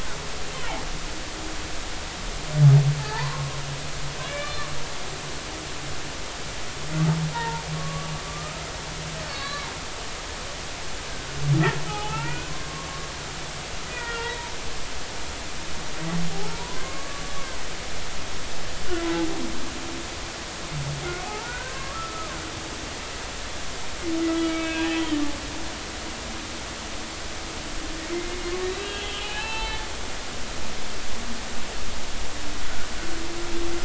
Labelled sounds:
3.0	3.5	humpback whale, 0.80 to 1.2 kHz
4.2	4.6	humpback whale, 1.5 to 2.4 kHz
7.3	8.7	humpback whale, 0.86 to 1.4 kHz
9.2	9.7	humpback whale, 1.0 to 4.6 kHz
11.9	12.9	humpback whale, 0.80 to 2.6 kHz
13.9	14.5	humpback whale, 0.86 to 4.0 kHz
16.5	17.2	humpback whale, 0.90 to 2.3 kHz
21.2	22.4	humpback whale, 0.80 to 1.7 kHz
24.3	24.9	humpback whale, 1.2 to 3.4 kHz
28.1	29.8	humpback whale, 0.80 to 4.1 kHz

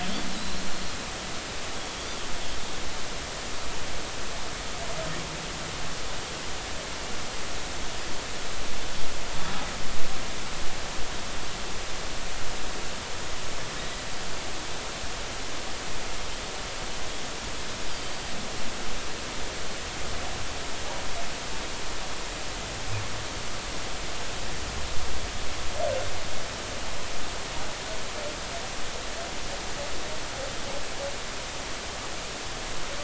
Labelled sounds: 0.0	0.7	Pacific white-sided dolphin, 3.1 to 4.3 kHz

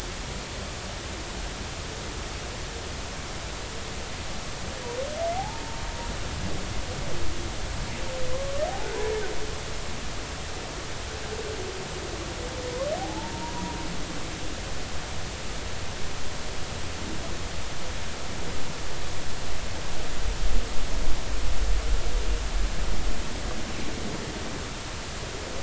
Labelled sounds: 5.4	5.8	humpback whale, 0.80 to 0.96 kHz
8.7	8.9	humpback whale, 0.80 to 0.90 kHz
13.0	13.5	humpback whale, 0.80 to 0.99 kHz

